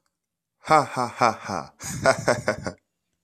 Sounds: Laughter